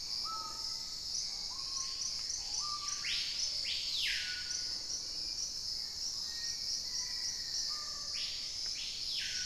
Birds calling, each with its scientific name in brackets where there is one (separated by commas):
Black-faced Antthrush (Formicarius analis), Hauxwell's Thrush (Turdus hauxwelli), Screaming Piha (Lipaugus vociferans)